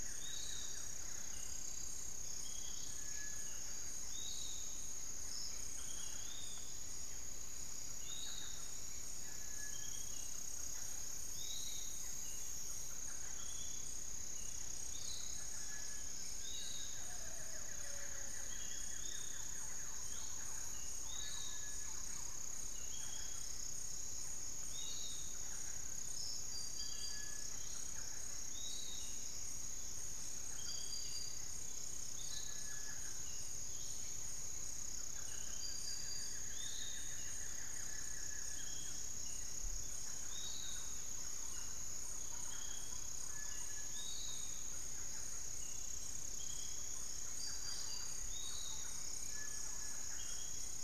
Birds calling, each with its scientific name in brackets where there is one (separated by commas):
Cinereous Tinamou (Crypturellus cinereus), Long-winged Antwren (Myrmotherula longipennis), unidentified bird, Buff-throated Woodcreeper (Xiphorhynchus guttatus), Thrush-like Wren (Campylorhynchus turdinus), Hauxwell's Thrush (Turdus hauxwelli), Barred Forest-Falcon (Micrastur ruficollis), Undulated Tinamou (Crypturellus undulatus), Piratic Flycatcher (Legatus leucophaius)